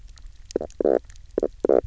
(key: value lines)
label: biophony, knock croak
recorder: SoundTrap 300